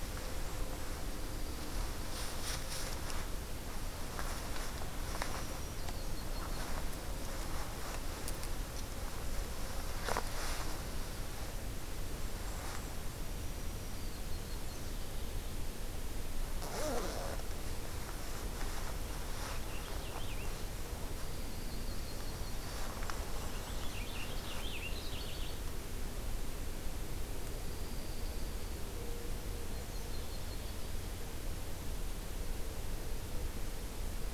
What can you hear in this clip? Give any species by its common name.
Yellow-rumped Warbler, Golden-crowned Kinglet, Black-throated Green Warbler, Black-capped Chickadee, Purple Finch, Dark-eyed Junco